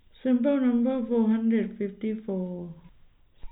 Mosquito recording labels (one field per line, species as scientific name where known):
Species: no mosquito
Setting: cup